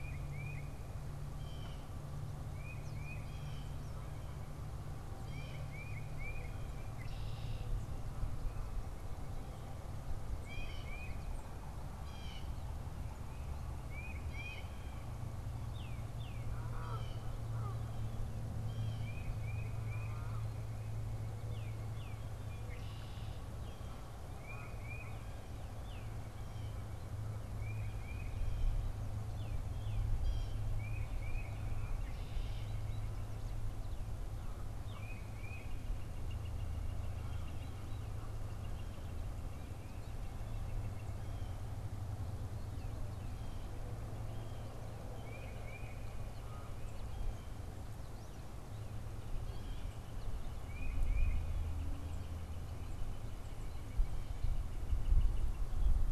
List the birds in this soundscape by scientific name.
Baeolophus bicolor, Cyanocitta cristata, Agelaius phoeniceus, Cardinalis cardinalis, Branta canadensis, Colaptes auratus, Sitta carolinensis